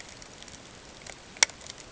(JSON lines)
{"label": "ambient", "recorder": "HydroMoth"}